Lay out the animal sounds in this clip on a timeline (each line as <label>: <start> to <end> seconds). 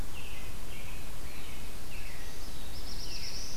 American Robin (Turdus migratorius): 0.0 to 2.4 seconds
Black-throated Blue Warbler (Setophaga caerulescens): 1.0 to 3.6 seconds
Veery (Catharus fuscescens): 3.0 to 3.4 seconds